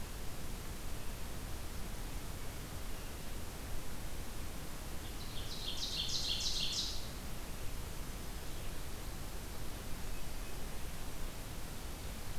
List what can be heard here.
Ovenbird